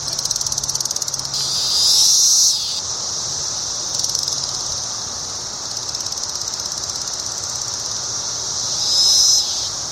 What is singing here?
Magicicada cassini, a cicada